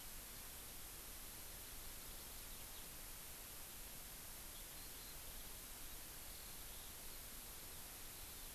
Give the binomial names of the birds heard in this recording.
Alauda arvensis